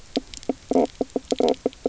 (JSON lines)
{"label": "biophony, knock croak", "recorder": "SoundTrap 300"}